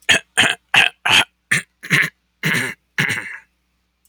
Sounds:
Throat clearing